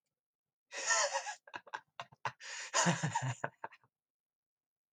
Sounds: Laughter